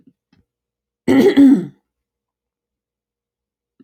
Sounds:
Throat clearing